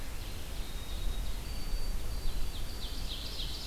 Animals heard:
Ovenbird (Seiurus aurocapilla)
White-throated Sparrow (Zonotrichia albicollis)
Red-eyed Vireo (Vireo olivaceus)

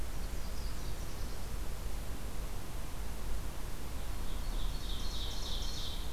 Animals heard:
Nashville Warbler (Leiothlypis ruficapilla)
Ovenbird (Seiurus aurocapilla)

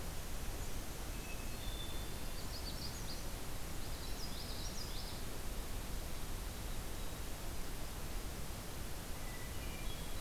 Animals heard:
Hermit Thrush (Catharus guttatus)
White-throated Sparrow (Zonotrichia albicollis)
Magnolia Warbler (Setophaga magnolia)
Common Yellowthroat (Geothlypis trichas)

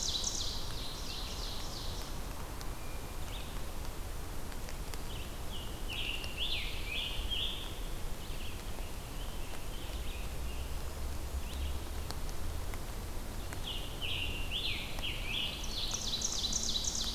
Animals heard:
Scarlet Tanager (Piranga olivacea)
Ovenbird (Seiurus aurocapilla)
Red-eyed Vireo (Vireo olivaceus)

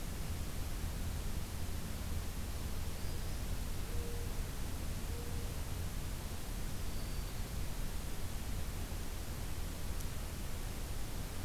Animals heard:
Black-throated Green Warbler (Setophaga virens)

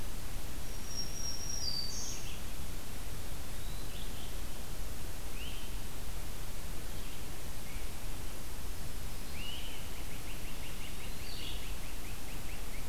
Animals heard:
Eastern Wood-Pewee (Contopus virens)
Black-throated Green Warbler (Setophaga virens)
Red-eyed Vireo (Vireo olivaceus)
Great Crested Flycatcher (Myiarchus crinitus)

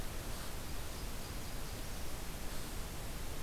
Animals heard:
Nashville Warbler (Leiothlypis ruficapilla)

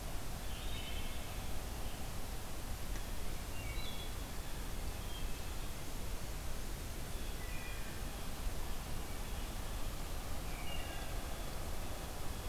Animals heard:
Wood Thrush (Hylocichla mustelina)
Blue Jay (Cyanocitta cristata)

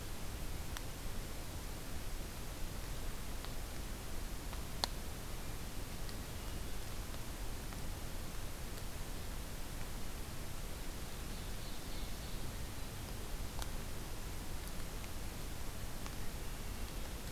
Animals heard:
Ovenbird (Seiurus aurocapilla)

